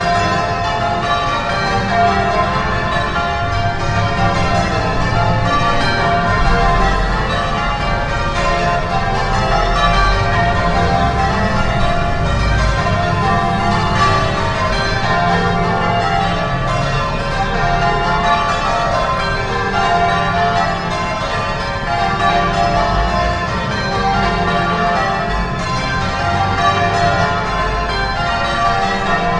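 Loud, constantly repeating echoing church bell ringing in the open air. 0:00.0 - 0:29.4

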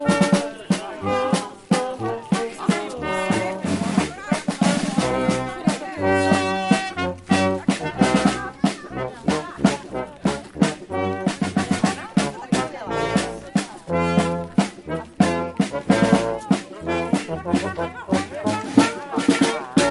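A band performs with raspy snare drum rhythms and bright trumpet melodies. 0:00.0 - 0:19.9
Multiple people are talking in the background with indistinct murmuring voices that blend together. 0:00.0 - 0:19.9

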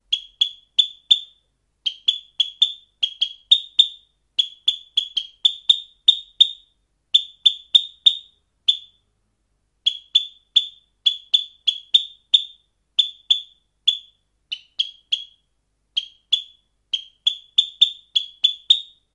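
A bird chirps repeatedly at a high pitch. 0:00.1 - 0:08.9
A bird chirps repeatedly at a high pitch. 0:09.8 - 0:15.3
A bird chirps repeatedly at a high pitch. 0:15.9 - 0:18.9

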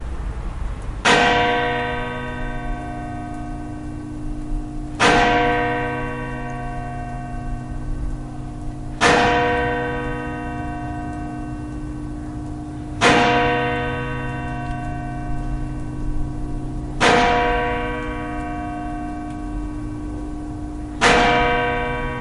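A deep bell chimes with a metallic ring that echoes through the air, marking the passing time and reverberating through the quiet surroundings like a steady signal. 0:00.1 - 0:20.9

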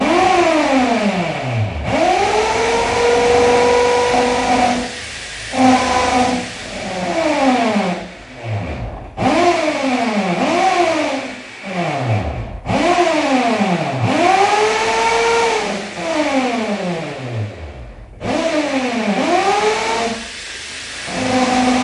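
A drill produces short, high-pitched bursts of sound in an irregular pattern, suggesting repeated drilling actions. 0:00.0 - 0:21.8

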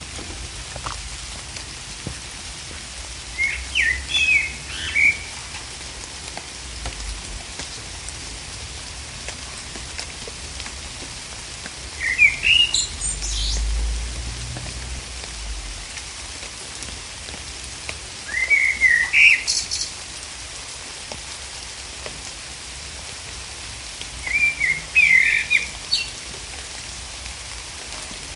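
Rain falls consistently. 0:00.0 - 0:28.4
A bird chirps melodically. 0:03.3 - 0:05.3
A bird chirps melodically. 0:11.9 - 0:13.7
A bird chirps melodically. 0:18.2 - 0:19.9
A bird chirps melodically. 0:24.2 - 0:26.1

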